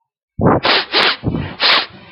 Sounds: Sniff